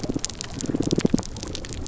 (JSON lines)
{"label": "biophony, damselfish", "recorder": "SoundTrap 300"}